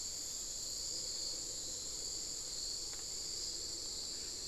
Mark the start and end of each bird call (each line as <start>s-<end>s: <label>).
0.8s-2.4s: Amazonian Motmot (Momotus momota)